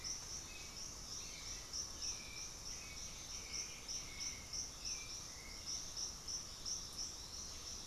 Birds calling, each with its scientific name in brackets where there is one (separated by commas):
Russet-backed Oropendola (Psarocolius angustifrons), Hauxwell's Thrush (Turdus hauxwelli), White-winged Becard (Pachyramphus polychopterus)